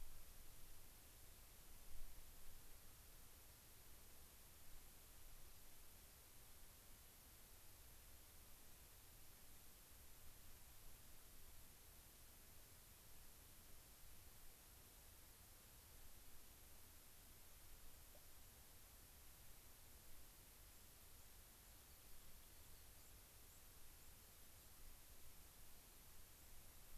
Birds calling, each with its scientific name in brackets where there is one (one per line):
White-crowned Sparrow (Zonotrichia leucophrys)